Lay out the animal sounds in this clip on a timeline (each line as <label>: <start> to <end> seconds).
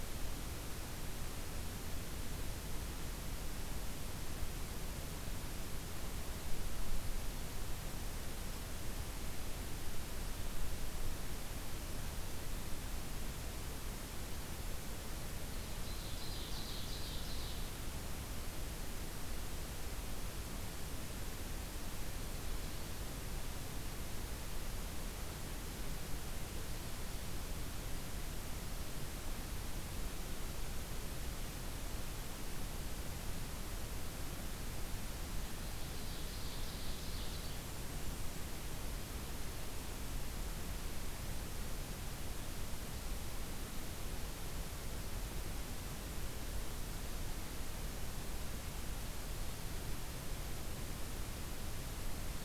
Ovenbird (Seiurus aurocapilla): 15.3 to 17.7 seconds
Ovenbird (Seiurus aurocapilla): 35.4 to 37.5 seconds
Blackburnian Warbler (Setophaga fusca): 37.3 to 38.5 seconds